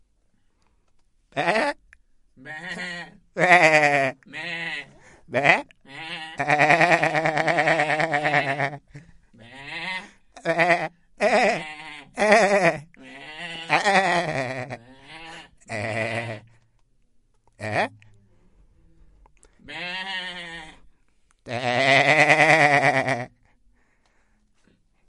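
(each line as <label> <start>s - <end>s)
A man imitates a sheep sound. 1.3s - 1.8s
A sheep bleats in the distance outdoors. 2.4s - 3.3s
A man imitates a sheep sound outdoors. 3.4s - 4.1s
A sheep makes a quiet sound. 4.4s - 4.9s
A man imitates a sheep sound with a rising tone at the end. 5.3s - 5.8s
A sheep bleats in the distance. 6.0s - 16.5s
A man loudly imitates a sheep sound that gradually fades. 6.5s - 16.4s
A man is continuously vocalizing a sound with rising pitch at the end. 17.6s - 17.9s
A sheep bleats in the distance. 19.7s - 20.8s
A man imitates a sheep sound. 21.5s - 23.3s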